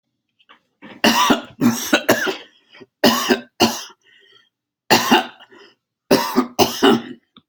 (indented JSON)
{
  "expert_labels": [
    {
      "quality": "good",
      "cough_type": "wet",
      "dyspnea": false,
      "wheezing": false,
      "stridor": false,
      "choking": false,
      "congestion": false,
      "nothing": true,
      "diagnosis": "upper respiratory tract infection",
      "severity": "mild"
    }
  ],
  "age": 81,
  "gender": "male",
  "respiratory_condition": false,
  "fever_muscle_pain": false,
  "status": "healthy"
}